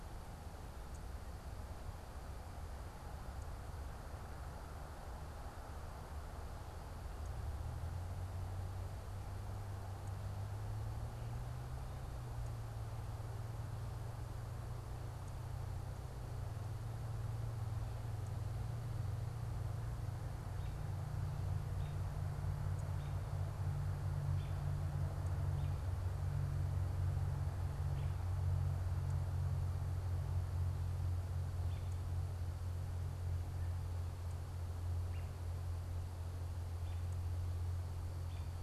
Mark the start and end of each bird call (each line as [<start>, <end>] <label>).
[20.37, 24.67] American Robin (Turdus migratorius)
[27.67, 38.57] American Robin (Turdus migratorius)